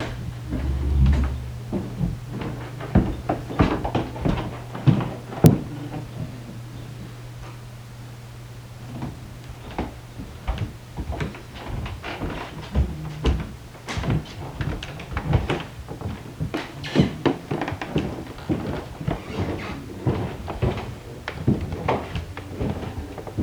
Did anyone run across the floor?
no